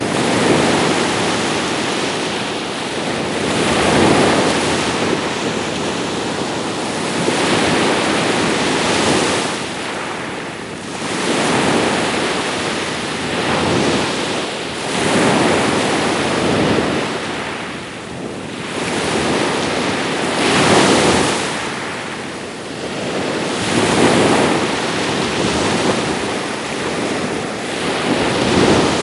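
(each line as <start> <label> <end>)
0.0 Ocean waves hitting the beach. 29.0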